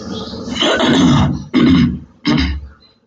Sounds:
Throat clearing